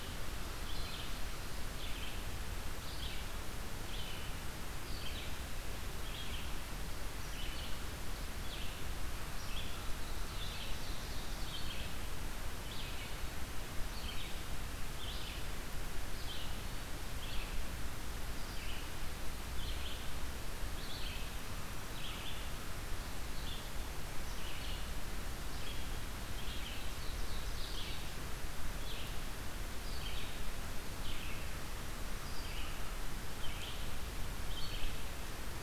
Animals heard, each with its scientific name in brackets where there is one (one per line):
Ovenbird (Seiurus aurocapilla)
Red-eyed Vireo (Vireo olivaceus)